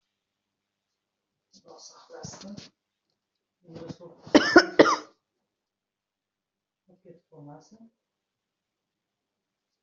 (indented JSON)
{
  "expert_labels": [
    {
      "quality": "good",
      "cough_type": "dry",
      "dyspnea": false,
      "wheezing": false,
      "stridor": false,
      "choking": false,
      "congestion": false,
      "nothing": true,
      "diagnosis": "healthy cough",
      "severity": "pseudocough/healthy cough"
    }
  ],
  "gender": "female",
  "respiratory_condition": false,
  "fever_muscle_pain": false,
  "status": "healthy"
}